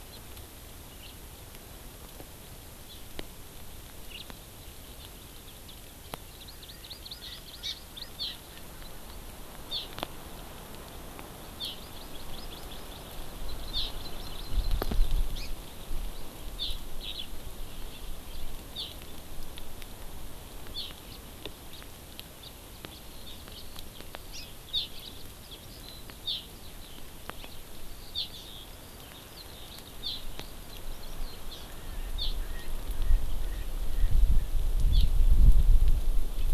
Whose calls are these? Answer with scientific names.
Haemorhous mexicanus, Chlorodrepanis virens, Pternistis erckelii, Alauda arvensis